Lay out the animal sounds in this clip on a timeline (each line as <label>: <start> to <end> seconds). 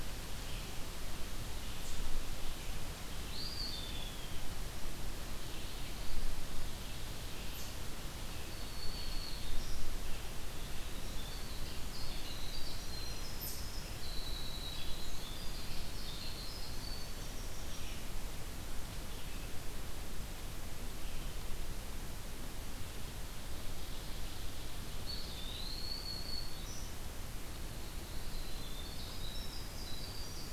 Eastern Chipmunk (Tamias striatus): 0.0 to 13.6 seconds
Red-eyed Vireo (Vireo olivaceus): 0.0 to 30.5 seconds
Eastern Wood-Pewee (Contopus virens): 3.0 to 4.7 seconds
Black-throated Green Warbler (Setophaga virens): 8.3 to 9.9 seconds
Winter Wren (Troglodytes hiemalis): 10.3 to 18.0 seconds
Eastern Wood-Pewee (Contopus virens): 25.0 to 26.1 seconds
Black-throated Green Warbler (Setophaga virens): 25.3 to 27.1 seconds
Winter Wren (Troglodytes hiemalis): 27.8 to 30.5 seconds